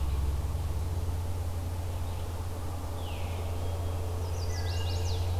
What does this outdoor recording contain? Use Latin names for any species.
Catharus fuscescens, Setophaga pensylvanica, Hylocichla mustelina